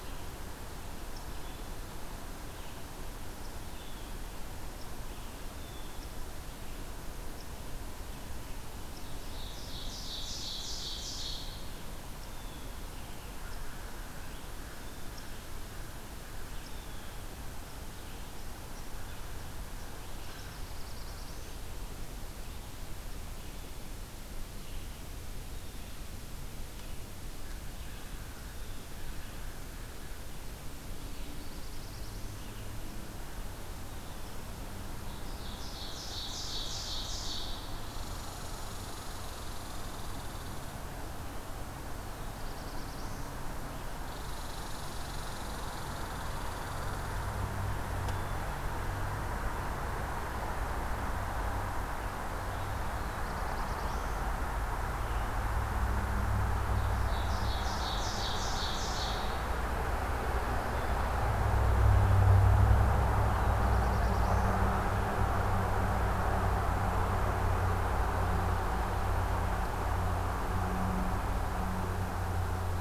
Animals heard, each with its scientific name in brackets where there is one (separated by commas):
Red Squirrel (Tamiasciurus hudsonicus), American Crow (Corvus brachyrhynchos), Blue Jay (Cyanocitta cristata), Black-throated Blue Warbler (Setophaga caerulescens), Ovenbird (Seiurus aurocapilla)